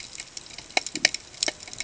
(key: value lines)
label: ambient
recorder: HydroMoth